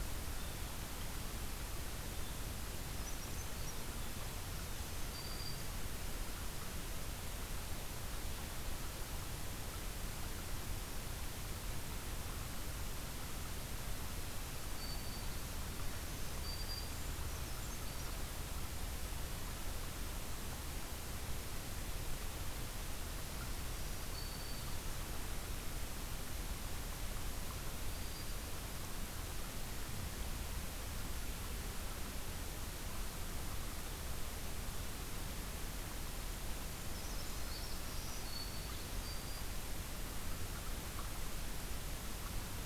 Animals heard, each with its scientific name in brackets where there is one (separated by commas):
Black-throated Green Warbler (Setophaga virens), Blue Jay (Cyanocitta cristata), Brown Creeper (Certhia americana)